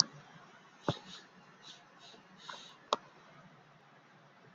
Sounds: Sniff